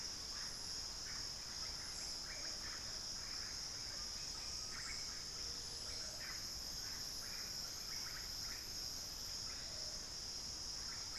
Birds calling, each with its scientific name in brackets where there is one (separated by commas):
Undulated Tinamou (Crypturellus undulatus), Russet-backed Oropendola (Psarocolius angustifrons)